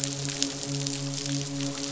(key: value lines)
label: biophony, midshipman
recorder: SoundTrap 500